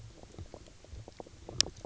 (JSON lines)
{"label": "biophony, knock croak", "recorder": "SoundTrap 300"}